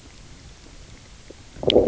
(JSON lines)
{"label": "biophony, low growl", "recorder": "SoundTrap 300"}